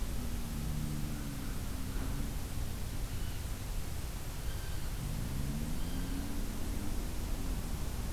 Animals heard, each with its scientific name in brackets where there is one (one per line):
Blue Jay (Cyanocitta cristata)